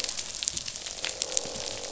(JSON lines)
{"label": "biophony, croak", "recorder": "SoundTrap 500"}